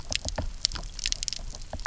{"label": "biophony, knock", "recorder": "SoundTrap 300"}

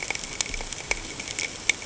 {"label": "ambient", "recorder": "HydroMoth"}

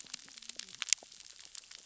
{"label": "biophony, cascading saw", "recorder": "SoundTrap 600 or HydroMoth"}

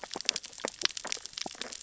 {"label": "biophony, sea urchins (Echinidae)", "recorder": "SoundTrap 600 or HydroMoth"}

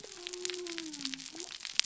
{"label": "biophony", "recorder": "SoundTrap 300"}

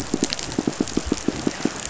{"label": "biophony, pulse", "recorder": "SoundTrap 500"}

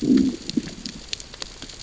{"label": "biophony, growl", "recorder": "SoundTrap 600 or HydroMoth"}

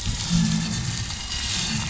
{"label": "anthrophony, boat engine", "recorder": "SoundTrap 500"}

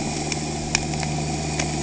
{"label": "anthrophony, boat engine", "recorder": "HydroMoth"}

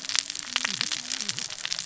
{"label": "biophony, cascading saw", "recorder": "SoundTrap 600 or HydroMoth"}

